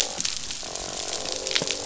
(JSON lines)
{"label": "biophony, croak", "recorder": "SoundTrap 500"}